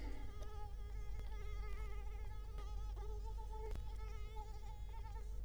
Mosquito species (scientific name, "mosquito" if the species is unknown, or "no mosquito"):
Culex quinquefasciatus